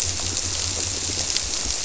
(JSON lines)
{"label": "biophony", "recorder": "SoundTrap 300"}